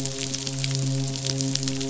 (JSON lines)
{"label": "biophony, midshipman", "recorder": "SoundTrap 500"}